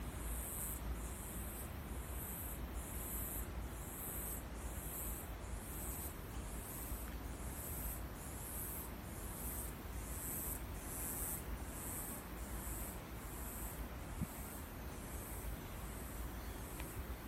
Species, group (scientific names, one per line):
Birrima castanea
Cicadidae